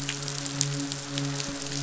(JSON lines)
{"label": "biophony, midshipman", "recorder": "SoundTrap 500"}